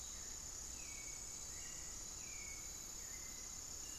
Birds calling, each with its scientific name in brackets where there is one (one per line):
Hauxwell's Thrush (Turdus hauxwelli)
unidentified bird
Thrush-like Wren (Campylorhynchus turdinus)